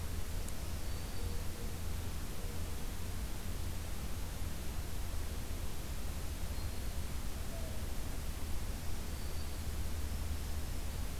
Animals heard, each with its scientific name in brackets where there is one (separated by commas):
Black-throated Green Warbler (Setophaga virens), Mourning Dove (Zenaida macroura)